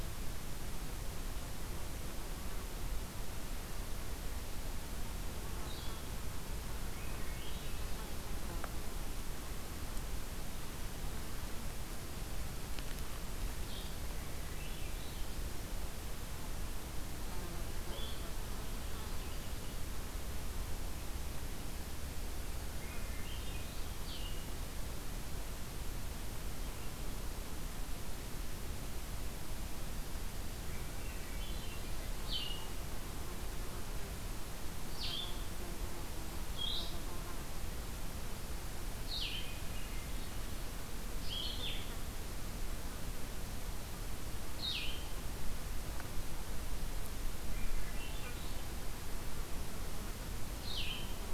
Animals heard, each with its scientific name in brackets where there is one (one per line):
Swainson's Thrush (Catharus ustulatus)
Blue-headed Vireo (Vireo solitarius)